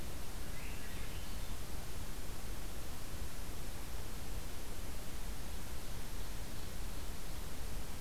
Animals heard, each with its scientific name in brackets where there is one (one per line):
Swainson's Thrush (Catharus ustulatus)